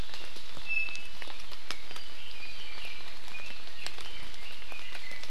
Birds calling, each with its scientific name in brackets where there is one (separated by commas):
Red-billed Leiothrix (Leiothrix lutea), Iiwi (Drepanis coccinea)